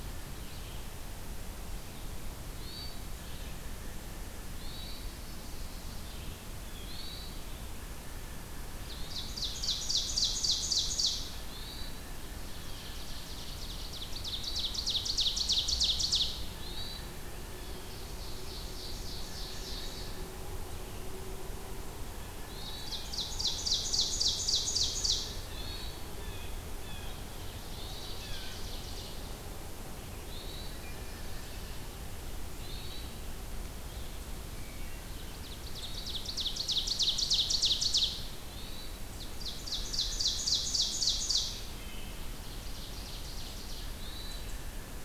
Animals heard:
Hermit Thrush (Catharus guttatus), Chestnut-sided Warbler (Setophaga pensylvanica), Ovenbird (Seiurus aurocapilla), Blue Jay (Cyanocitta cristata)

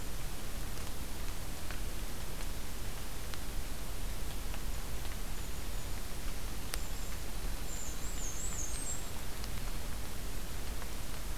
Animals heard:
Black-and-white Warbler (Mniotilta varia), Golden-crowned Kinglet (Regulus satrapa)

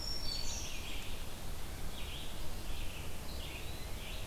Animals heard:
Blackburnian Warbler (Setophaga fusca), Black-throated Green Warbler (Setophaga virens), Red-eyed Vireo (Vireo olivaceus)

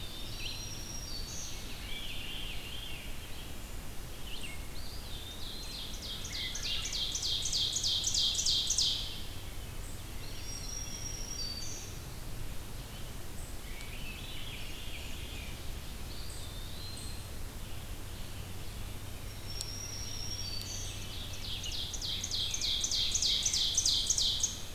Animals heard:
Rose-breasted Grosbeak (Pheucticus ludovicianus), Eastern Wood-Pewee (Contopus virens), Red-eyed Vireo (Vireo olivaceus), Black-throated Green Warbler (Setophaga virens), Ovenbird (Seiurus aurocapilla), Wood Thrush (Hylocichla mustelina), Veery (Catharus fuscescens)

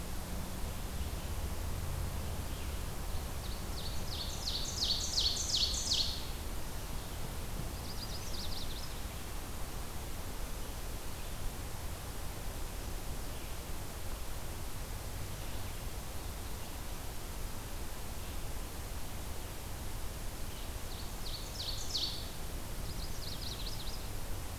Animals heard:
Magnolia Warbler (Setophaga magnolia), Ovenbird (Seiurus aurocapilla)

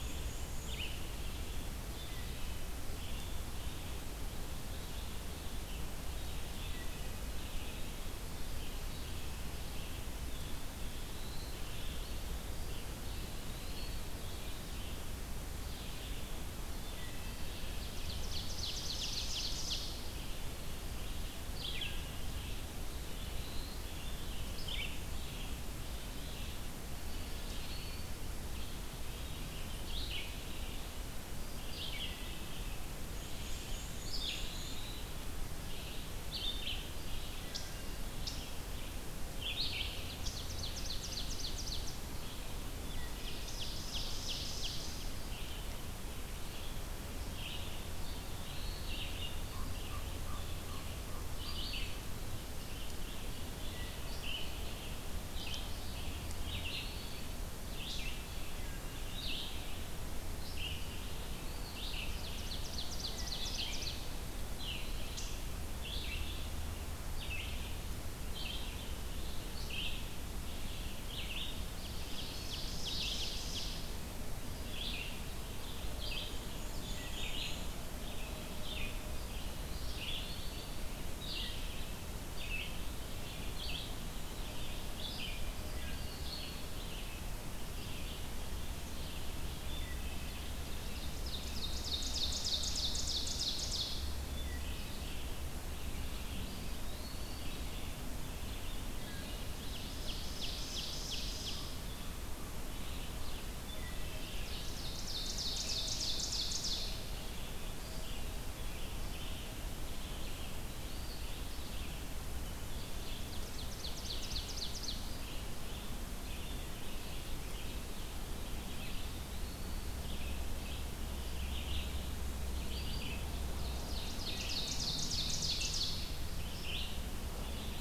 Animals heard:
Red-eyed Vireo (Vireo olivaceus), Eastern Wood-Pewee (Contopus virens), Black-and-white Warbler (Mniotilta varia), Black-throated Blue Warbler (Setophaga caerulescens), Ovenbird (Seiurus aurocapilla), Common Raven (Corvus corax), Wood Thrush (Hylocichla mustelina)

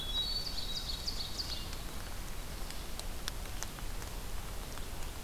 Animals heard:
Ovenbird (Seiurus aurocapilla), Hermit Thrush (Catharus guttatus)

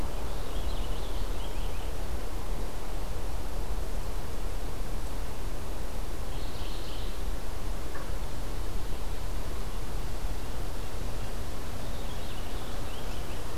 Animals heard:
Purple Finch (Haemorhous purpureus), Mourning Warbler (Geothlypis philadelphia)

